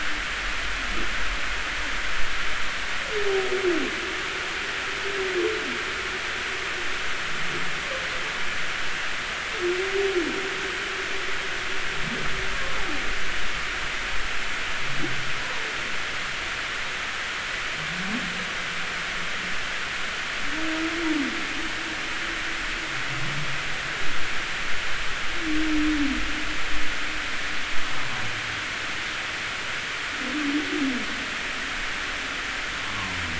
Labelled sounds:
15.4	15.7	humpback whale, 0.86 to 1.1 kHz

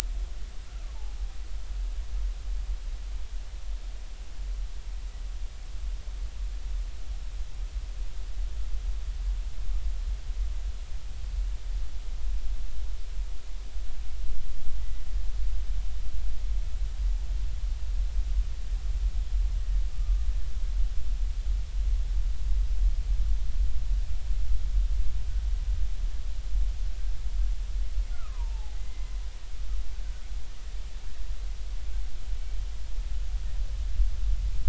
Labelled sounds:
0.7	0.9	killer whale, Bigg's (transient), 1.1 to 1.4 kHz
14.8	15.0	killer whale, Bigg's (transient), 1.9 to 2.0 kHz
19.9	20.2	killer whale, Bigg's (transient), 1.15 to 1.25 kHz
28.1	29.0	killer whale, Bigg's (transient), 0.80 to 2.1 kHz

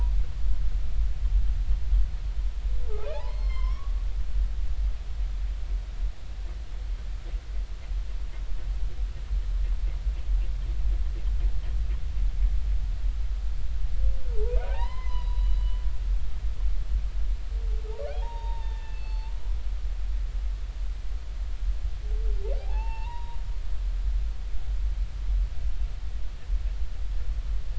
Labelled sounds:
3.0	3.9	humpback whale, 0.80 to 5.4 kHz
14.3	15.5	humpback whale, 0.80 to 5.1 kHz
18.1	19.4	humpback whale, 0.80 to 4.5 kHz
22.6	23.4	humpback whale, 0.80 to 4.5 kHz

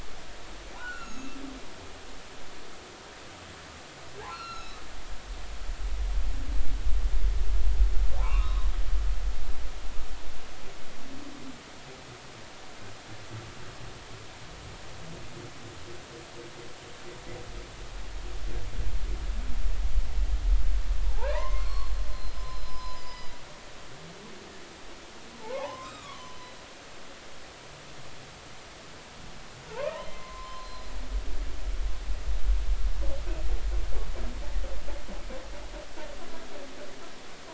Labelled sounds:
0.8	1.4	humpback whale, 1.2 to 6.9 kHz
4.3	4.8	humpback whale, 1.2 to 4.4 kHz
8.2	8.7	humpback whale, 0.86 to 3.8 kHz
21.0	23.4	humpback whale, 0.80 to 5.2 kHz
25.4	26.7	humpback whale, 0.80 to 4.0 kHz
29.7	30.9	humpback whale, 0.83 to 4.2 kHz

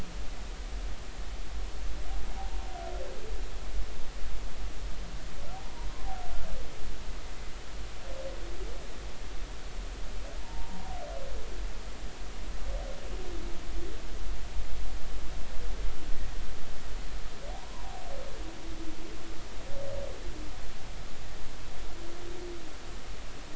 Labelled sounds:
5.6	5.9	humpback whale, 0.90 to 1.1 kHz
10.4	10.9	humpback whale, 0.86 to 1.0 kHz
17.6	17.9	humpback whale, 0.90 to 1.1 kHz

